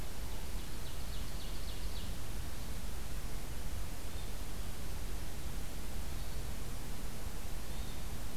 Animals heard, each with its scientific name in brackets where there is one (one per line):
Hermit Thrush (Catharus guttatus)
Ovenbird (Seiurus aurocapilla)